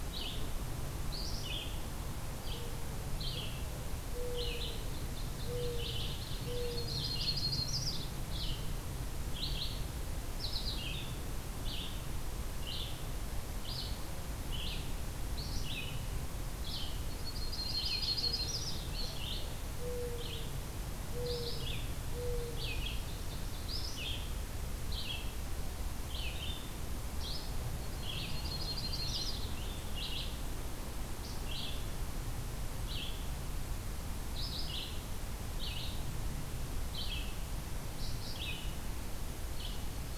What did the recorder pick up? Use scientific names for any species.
Vireo olivaceus, Zenaida macroura, Seiurus aurocapilla, Setophaga coronata, Haemorhous purpureus